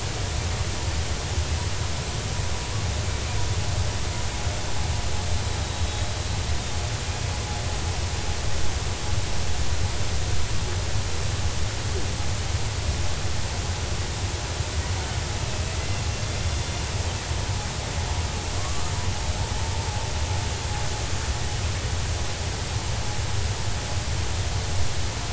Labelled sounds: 18.6	18.9	killer whale, 1.0 to 1.3 kHz

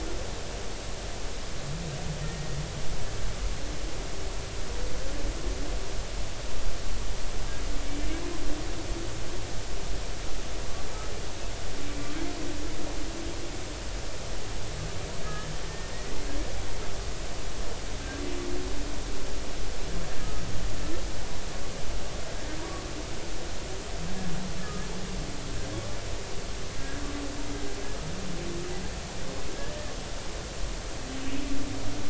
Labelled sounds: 2.2	2.6	humpback whale, 1.8 to 1.9 kHz
15.2	15.5	humpback whale, 1.6 to 1.8 kHz
24.6	24.8	humpback whale, 1.2 to 1.3 kHz

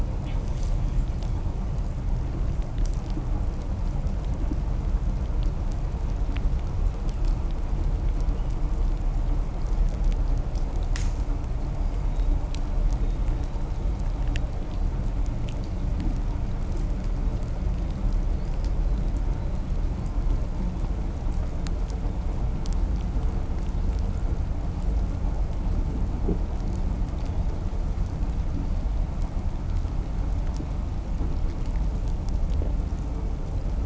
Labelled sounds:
0.1	0.8	killer whale, southern resident, 1.3 to 8.0 kHz
1.9	7.1	vessel noise, 0 to 1.8 kHz
12.0	14.5	killer whale, southern resident, 3.2 to 4.2 kHz
17.1	20.3	killer whale, southern resident, 3.2 to 5.2 kHz

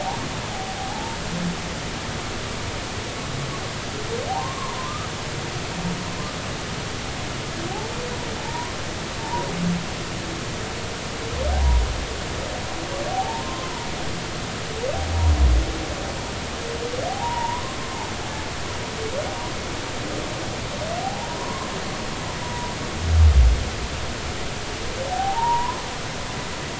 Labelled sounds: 0.0	1.2	humpback whale, 0.80 to 1.0 kHz
4.3	5.1	humpback whale, 0.80 to 1.3 kHz
8.4	8.8	humpback whale, 0.83 to 1.1 kHz
9.2	9.5	humpback whale, 0.83 to 1.0 kHz
13.1	13.7	humpback whale, 0.80 to 1.1 kHz
17.1	17.8	humpback whale, 0.80 to 1.2 kHz
21.0	21.7	humpback whale, 0.80 to 1.1 kHz
22.4	22.7	humpback whale, 0.93 to 1.0 kHz
25.1	25.8	humpback whale, 0.80 to 1.1 kHz

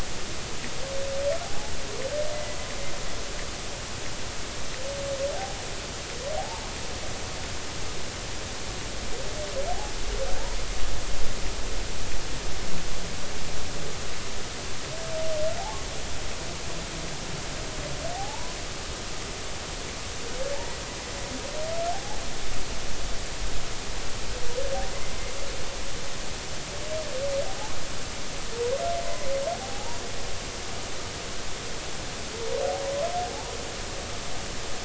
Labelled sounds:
1.4	1.7	humpback whale, 0.80 to 0.90 kHz
2.3	2.6	humpback whale, 1.95 to 2.05 kHz
6.4	6.7	humpback whale, 0.80 to 0.96 kHz
18.2	18.6	humpback whale, 0.80 to 1.1 kHz
21.9	22.2	humpback whale, 0.80 to 0.90 kHz
29.6	30.0	humpback whale, 0.80 to 0.99 kHz

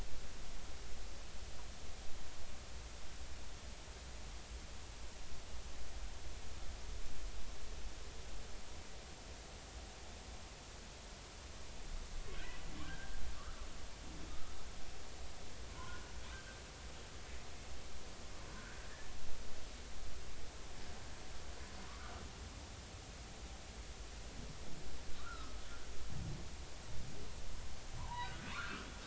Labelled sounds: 12.8	13.7	humpback whale, 1.1 to 1.7 kHz
14.3	14.6	humpback whale, 1.2 to 1.4 kHz
15.7	16.1	humpback whale, 0.93 to 1.6 kHz
18.5	18.8	humpback whale, 1.3 to 1.7 kHz
21.9	22.1	humpback whale, 1.1 to 1.5 kHz
25.2	25.6	humpback whale, 1.1 to 1.5 kHz
28.0	28.9	humpback whale, 0.80 to 1.7 kHz

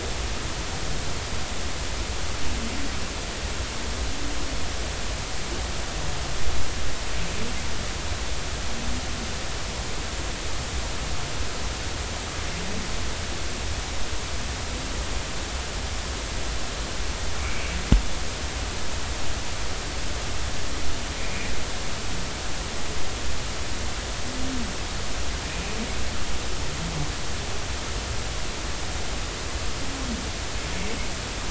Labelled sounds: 17.4	17.7	humpback whale, 2.1 to 2.6 kHz
21.2	21.5	humpback whale, 2.1 to 2.5 kHz

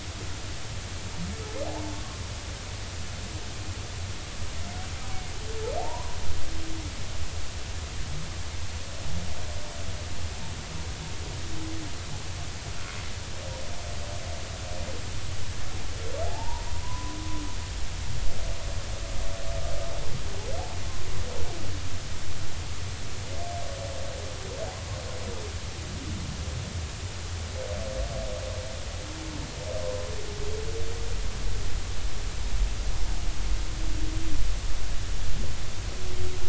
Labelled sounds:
1.7	2.0	humpback whale, 0.80 to 1.0 kHz
5.8	6.2	humpback whale, 0.80 to 1.1 kHz
16.2	17.2	humpback whale, 0.80 to 1.1 kHz
29.8	30.1	humpback whale, 0.93 to 1.1 kHz

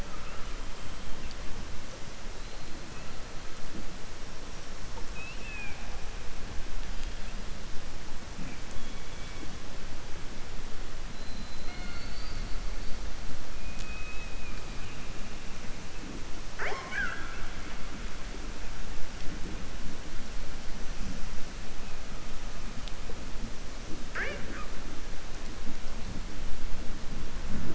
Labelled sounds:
16.4	17.5	killer whale, southern resident, 0.42 to 5.9 kHz

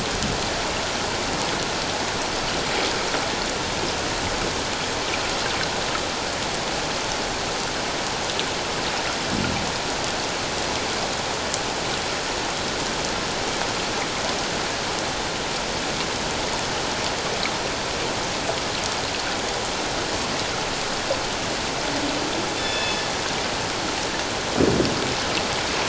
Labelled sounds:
22.6	23.0	killer whale, northern resident, G clan, 1.7 to 3.6 kHz

